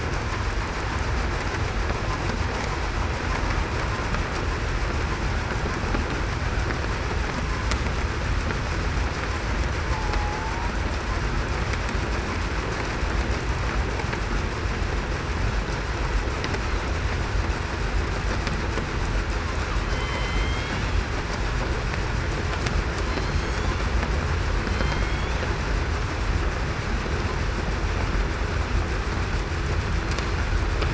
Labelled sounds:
10.1	10.7	killer whale, southern resident, 0.80 to 0.98 kHz
19.8	20.8	killer whale, southern resident, 2.0 to 3.5 kHz
23.0	23.6	killer whale, southern resident, 4.1 to 4.5 kHz
24.6	25.3	killer whale, southern resident, 2.0 to 3.5 kHz

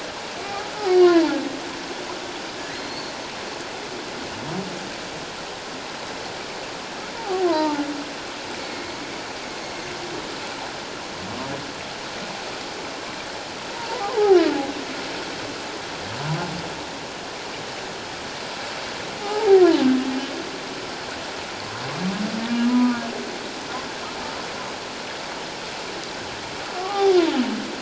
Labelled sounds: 0.4	1.3	humpback whale, 0.84 to 4.8 kHz
2.7	3.1	humpback whale, 4.1 to 4.6 kHz
7.1	7.9	humpback whale, 0.78 to 1.3 kHz
8.6	8.9	humpback whale, 2.1 to 2.2 kHz
13.8	14.4	humpback whale, 0.78 to 1.1 kHz
19.2	19.5	humpback whale, 0.78 to 0.97 kHz
22.6	23.0	humpback whale, 0.94 to 1.3 kHz
26.7	27.2	humpback whale, 0.78 to 1.3 kHz

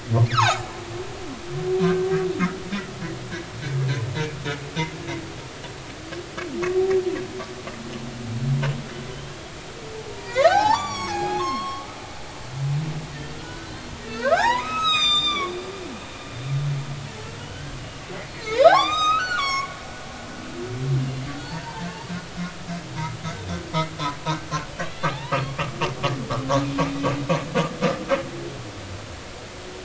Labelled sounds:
0.2	0.7	humpback whale, 0.80 to 7.2 kHz
10.1	11.9	humpback whale, 0.80 to 8.0 kHz
13.4	15.5	humpback whale, 0.80 to 7.8 kHz
17.4	17.8	humpback whale, 1.4 to 3.1 kHz
18.3	19.8	humpback whale, 0.80 to 7.6 kHz
21.0	21.9	humpback whale, 0.83 to 2.9 kHz

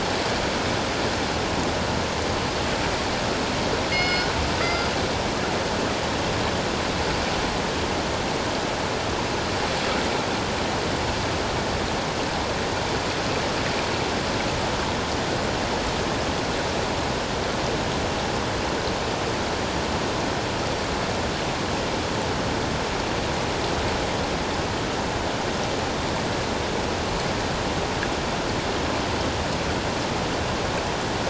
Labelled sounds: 3.9	4.9	killer whale, northern resident, G clan, call N24ii, 1.3 to 5.2 kHz

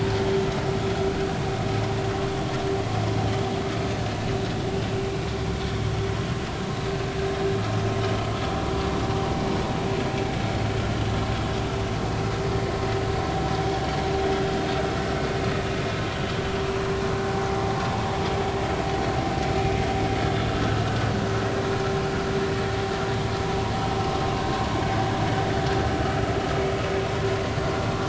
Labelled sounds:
24.4	24.6	vessel noise, 1.5 to 1.6 kHz

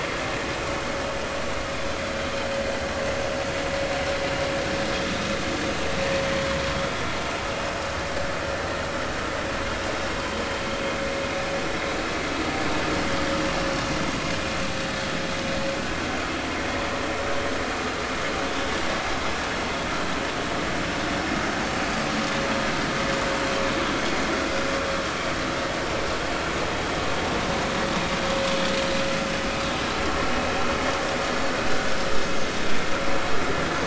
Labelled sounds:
21.8	22.1	vessel noise, 4.7 to 4.9 kHz

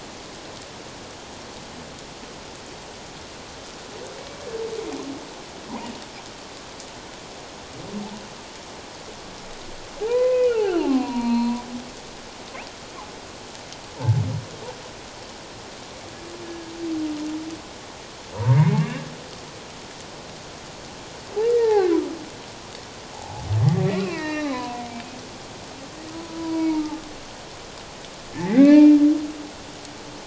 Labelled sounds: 5.7	5.9	humpback whale, 0.88 to 1.1 kHz
10.0	11.6	humpback whale, 0.78 to 4.4 kHz
16.4	16.7	humpback whale, 1.6 to 1.8 kHz
18.3	19.0	humpback whale, 0.88 to 2.8 kHz
21.4	21.9	humpback whale, 0.78 to 2.4 kHz
23.1	24.9	humpback whale, 0.78 to 4.1 kHz
26.4	27.0	humpback whale, 0.81 to 2.3 kHz
28.3	29.0	humpback whale, 1.7 to 4.2 kHz

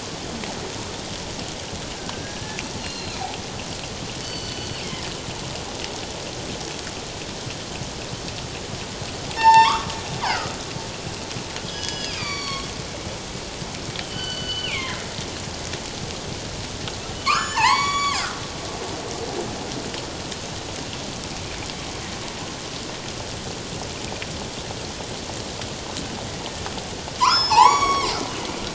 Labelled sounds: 2.0	2.4	killer whale, northern resident, G clan, 1.5 to 1.7 kHz
2.8	3.2	killer whale, northern resident, G clan, 2.3 to 4.4 kHz
4.2	5.1	killer whale, northern resident, G clan, 1.8 to 6.1 kHz
9.4	10.6	killer whale, northern resident, G clan, 0.81 to 7.2 kHz
11.7	12.7	killer whale, northern resident, G clan, 1.0 to 6.9 kHz
14.0	15.0	killer whale, northern resident, G clan, 1.4 to 4.6 kHz
17.1	18.2	killer whale, northern resident, G clan, 0.78 to 8.0 kHz
27.2	28.2	killer whale, northern resident, G clan, 0.78 to 6.9 kHz

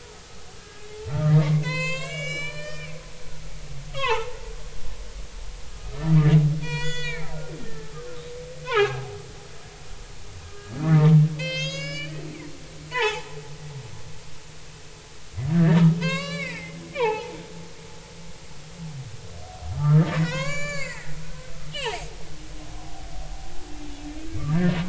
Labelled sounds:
0.6	0.8	humpback whale, 1.5 to 1.7 kHz
1.3	2.9	humpback whale, 0.93 to 8.0 kHz
3.9	4.4	humpback whale, 0.83 to 3.6 kHz
5.6	7.3	humpback whale, 0.90 to 7.4 kHz
7.6	8.2	humpback whale, 0.99 to 1.9 kHz
8.6	9.2	humpback whale, 0.80 to 1.7 kHz
10.4	12.3	humpback whale, 0.93 to 7.3 kHz
12.5	13.4	humpback whale, 0.80 to 7.1 kHz
15.5	17.4	humpback whale, 0.80 to 5.2 kHz
19.7	22.1	humpback whale, 0.80 to 7.6 kHz
22.8	23.1	humpback whale, 0.80 to 0.83 kHz

